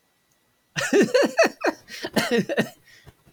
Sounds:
Laughter